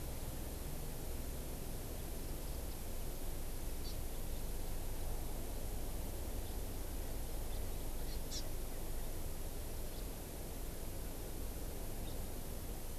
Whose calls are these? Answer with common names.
Hawaii Amakihi